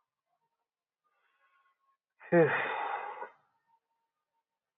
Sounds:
Sigh